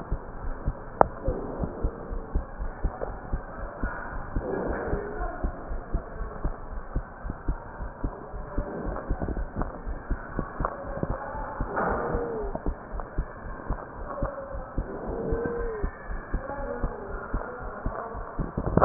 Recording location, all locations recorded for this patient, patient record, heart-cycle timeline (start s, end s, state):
pulmonary valve (PV)
aortic valve (AV)+pulmonary valve (PV)+tricuspid valve (TV)+mitral valve (MV)
#Age: Child
#Sex: Male
#Height: 142.0 cm
#Weight: 37.1 kg
#Pregnancy status: False
#Murmur: Absent
#Murmur locations: nan
#Most audible location: nan
#Systolic murmur timing: nan
#Systolic murmur shape: nan
#Systolic murmur grading: nan
#Systolic murmur pitch: nan
#Systolic murmur quality: nan
#Diastolic murmur timing: nan
#Diastolic murmur shape: nan
#Diastolic murmur grading: nan
#Diastolic murmur pitch: nan
#Diastolic murmur quality: nan
#Outcome: Normal
#Campaign: 2015 screening campaign
0.00	0.22	unannotated
0.22	0.42	diastole
0.42	0.55	S1
0.55	0.64	systole
0.64	0.73	S2
0.73	1.00	diastole
1.00	1.12	S1
1.12	1.24	systole
1.24	1.38	S2
1.38	1.56	diastole
1.56	1.70	S1
1.70	1.82	systole
1.82	1.92	S2
1.92	2.09	diastole
2.09	2.22	S1
2.22	2.34	systole
2.34	2.43	S2
2.43	2.59	diastole
2.59	2.71	S1
2.71	2.81	systole
2.81	2.90	S2
2.90	3.08	diastole
3.08	3.18	S1
3.18	3.30	systole
3.30	3.42	S2
3.42	3.61	diastole
3.61	3.70	S1
3.70	3.82	systole
3.82	3.91	S2
3.91	4.14	diastole
4.14	4.24	S1
4.24	4.34	systole
4.34	4.44	S2
4.44	4.62	diastole
4.62	4.76	S1
4.76	4.90	systole
4.90	5.04	S2
5.04	5.18	diastole
5.18	5.32	S1
5.32	5.40	systole
5.40	5.56	S2
5.56	5.70	diastole
5.70	5.82	S1
5.82	5.90	systole
5.90	6.04	S2
6.04	6.20	diastole
6.20	6.32	S1
6.32	6.42	systole
6.42	6.56	S2
6.56	6.72	diastole
6.72	6.84	S1
6.84	6.94	systole
6.94	7.06	S2
7.06	7.26	diastole
7.26	7.36	S1
7.36	7.46	systole
7.46	7.60	S2
7.60	7.79	diastole
7.79	7.90	S1
7.90	8.02	systole
8.02	8.13	S2
8.13	8.34	diastole
8.34	8.46	S1
8.46	8.56	systole
8.56	8.66	S2
8.66	8.84	diastole
8.84	8.98	S1
8.98	9.08	systole
9.08	9.18	S2
9.18	9.34	diastole
9.34	9.47	S1
9.47	9.57	systole
9.57	9.68	S2
9.68	9.86	diastole
9.86	18.85	unannotated